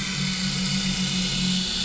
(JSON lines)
{"label": "anthrophony, boat engine", "recorder": "SoundTrap 500"}